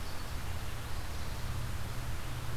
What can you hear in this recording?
Louisiana Waterthrush, Red-eyed Vireo